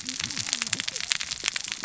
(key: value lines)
label: biophony, cascading saw
recorder: SoundTrap 600 or HydroMoth